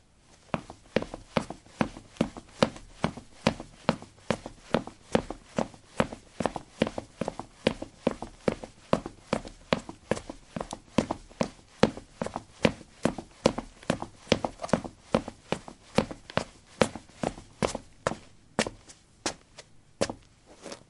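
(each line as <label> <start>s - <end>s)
Rhythmic footsteps on hard ground. 0.5s - 20.9s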